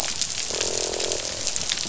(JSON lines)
{"label": "biophony, croak", "recorder": "SoundTrap 500"}